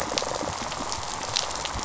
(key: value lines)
label: biophony, rattle response
recorder: SoundTrap 500